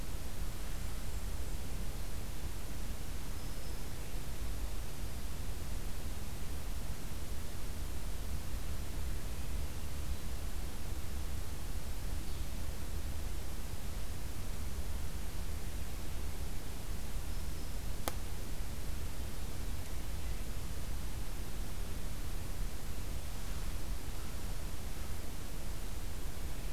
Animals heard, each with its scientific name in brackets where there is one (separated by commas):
Black-throated Green Warbler (Setophaga virens), Blackburnian Warbler (Setophaga fusca)